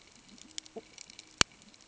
{"label": "ambient", "recorder": "HydroMoth"}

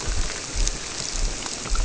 {"label": "biophony", "recorder": "SoundTrap 300"}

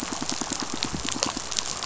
{"label": "biophony, pulse", "recorder": "SoundTrap 500"}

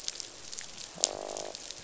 {"label": "biophony, croak", "recorder": "SoundTrap 500"}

